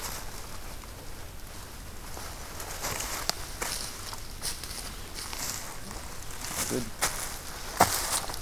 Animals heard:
forest ambience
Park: Acadia National Park